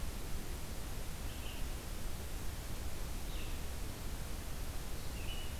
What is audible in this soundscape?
Red-eyed Vireo